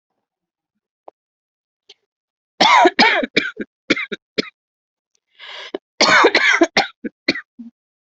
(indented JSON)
{
  "expert_labels": [
    {
      "quality": "good",
      "cough_type": "dry",
      "dyspnea": false,
      "wheezing": false,
      "stridor": false,
      "choking": false,
      "congestion": false,
      "nothing": true,
      "diagnosis": "COVID-19",
      "severity": "mild"
    }
  ],
  "age": 35,
  "gender": "female",
  "respiratory_condition": false,
  "fever_muscle_pain": true,
  "status": "symptomatic"
}